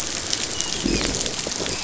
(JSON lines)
{"label": "biophony, dolphin", "recorder": "SoundTrap 500"}